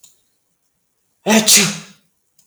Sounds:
Sneeze